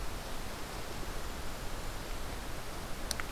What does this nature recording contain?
Golden-crowned Kinglet